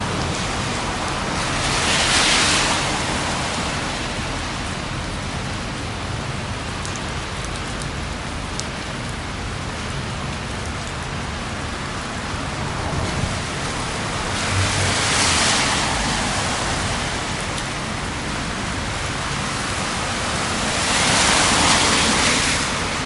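Rain falls on a street. 0.0 - 23.1
A car is driving by on a wet street. 1.4 - 3.1
A car is driving by on a wet street. 13.7 - 17.1
A car is driving by on a wet street. 20.7 - 23.0

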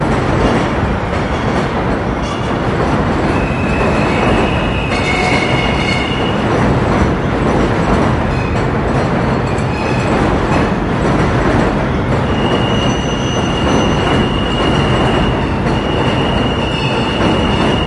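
Multiple trains passing by a station. 0.0 - 17.2

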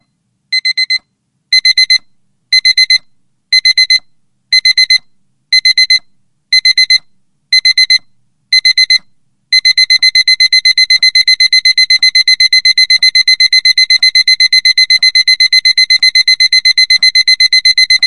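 An alarm is beeping. 0.5 - 18.1

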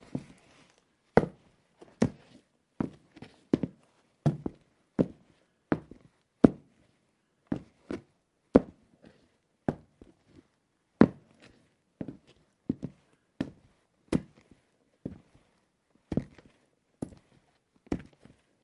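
Hard footsteps are heard slowly and repeatedly. 0.0 - 18.6

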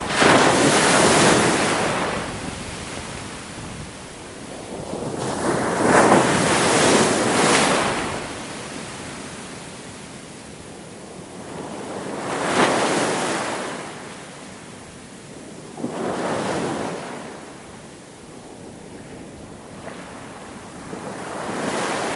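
Waves breaking nearby. 0.0 - 2.4
Seawater is rumbling nearby. 2.4 - 5.7
Waves breaking nearby. 5.5 - 8.2
Seawater is rumbling nearby. 8.2 - 12.2
Waves breaking nearby. 12.2 - 13.8
Seawater is rumbling nearby. 13.8 - 15.7
Waves are breaking nearby. 15.7 - 17.3
Seawater is rumbling nearby. 17.3 - 21.0
Waves breaking nearby. 21.0 - 22.2

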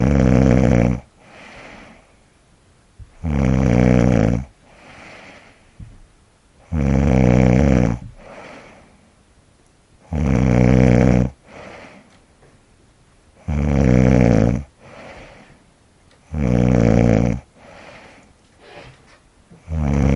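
Someone is snoring loudly. 0.0 - 1.0
Subtle white noise. 0.0 - 20.2
A person inhales softly and silently. 1.1 - 2.1
Someone is snoring loudly. 3.3 - 4.5
A person inhales softly and silently. 4.6 - 5.6
Someone is snoring loudly. 6.7 - 8.1
A person inhales softly and silently. 8.2 - 9.1
Someone is snoring loudly. 10.1 - 11.3
A person inhales softly and silently. 11.4 - 12.4
Someone is snoring loudly. 13.4 - 14.7
A person inhales softly and silently. 14.7 - 15.7
Someone is snoring loudly. 16.3 - 17.4
A person inhales softly and silently. 17.5 - 18.5
A chair squeaks quietly. 18.5 - 19.1
Someone is snoring loudly. 19.7 - 20.2

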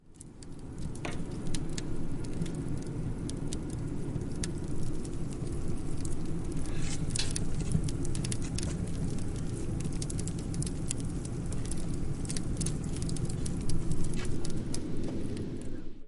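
Flames burn slowly. 0.0 - 16.1
A man is speaking indistinctly in the background. 15.4 - 16.1

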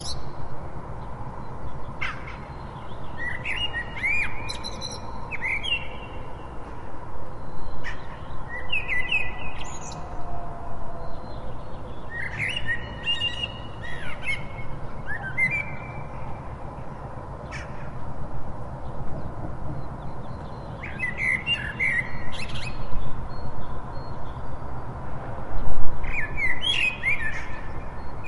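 A bird chirps rapidly in the trees overhead. 0.0 - 0.7
A bird tweets quickly and loudly. 0.0 - 28.3
Continuous background noises of a nearby city. 0.0 - 28.3
A bird sings loudly and continuously. 2.0 - 6.2
A bird caws briefly in the trees with an echo. 7.8 - 8.3
A bird trills continuously overhead. 8.3 - 10.3
A bird sings a short melody with an echo. 11.9 - 16.1
A bird caws briefly in the trees above. 17.5 - 18.0
A bird tweets a short melody with an echo. 20.8 - 22.9
A bird sings a melodic song with an echo. 26.1 - 28.2

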